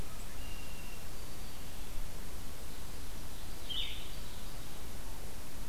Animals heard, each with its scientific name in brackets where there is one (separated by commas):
Red-winged Blackbird (Agelaius phoeniceus), Ovenbird (Seiurus aurocapilla), Black-throated Green Warbler (Setophaga virens), Blue-headed Vireo (Vireo solitarius)